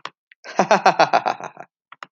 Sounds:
Laughter